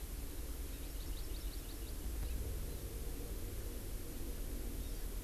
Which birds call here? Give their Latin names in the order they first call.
Chlorodrepanis virens